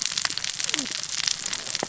{"label": "biophony, cascading saw", "recorder": "SoundTrap 600 or HydroMoth"}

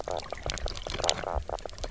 {"label": "biophony, knock croak", "recorder": "SoundTrap 300"}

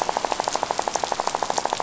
{"label": "biophony, rattle", "recorder": "SoundTrap 500"}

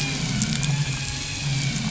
{"label": "anthrophony, boat engine", "recorder": "SoundTrap 500"}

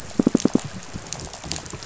{"label": "biophony, pulse", "recorder": "SoundTrap 500"}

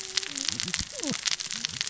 {"label": "biophony, cascading saw", "recorder": "SoundTrap 600 or HydroMoth"}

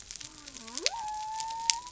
{"label": "biophony", "recorder": "SoundTrap 300"}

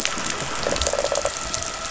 {"label": "anthrophony, boat engine", "recorder": "SoundTrap 500"}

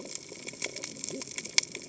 {"label": "biophony, cascading saw", "recorder": "HydroMoth"}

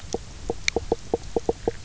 {"label": "biophony, knock croak", "recorder": "SoundTrap 300"}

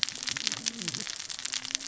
{"label": "biophony, cascading saw", "recorder": "SoundTrap 600 or HydroMoth"}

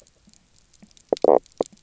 {"label": "biophony, knock croak", "recorder": "SoundTrap 300"}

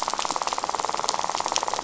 {"label": "biophony, rattle", "recorder": "SoundTrap 500"}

